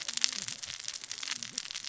{"label": "biophony, cascading saw", "recorder": "SoundTrap 600 or HydroMoth"}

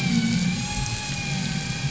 {"label": "anthrophony, boat engine", "recorder": "SoundTrap 500"}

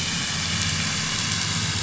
{"label": "anthrophony, boat engine", "recorder": "SoundTrap 500"}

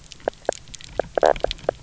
{"label": "biophony, knock croak", "recorder": "SoundTrap 300"}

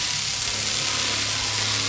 {"label": "anthrophony, boat engine", "recorder": "SoundTrap 500"}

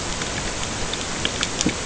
{"label": "ambient", "recorder": "HydroMoth"}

